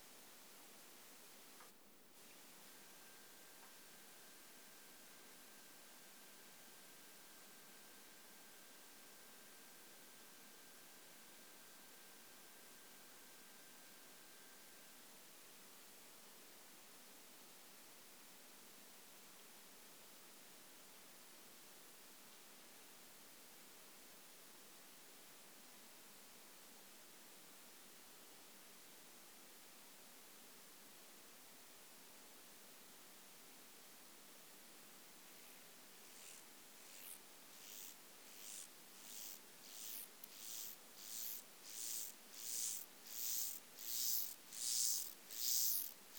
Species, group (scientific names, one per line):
Myrmeleotettix maculatus
Orthoptera